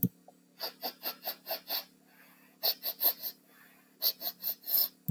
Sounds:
Sniff